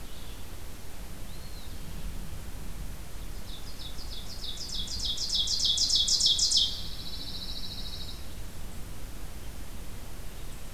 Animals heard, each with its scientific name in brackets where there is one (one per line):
Ovenbird (Seiurus aurocapilla)
Red-eyed Vireo (Vireo olivaceus)
Eastern Wood-Pewee (Contopus virens)
Pine Warbler (Setophaga pinus)